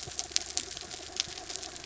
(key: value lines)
label: anthrophony, mechanical
recorder: SoundTrap 300